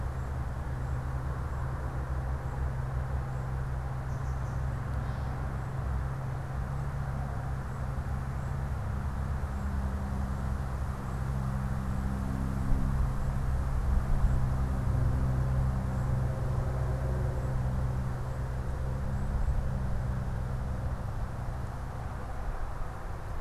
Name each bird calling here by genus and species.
Dumetella carolinensis, unidentified bird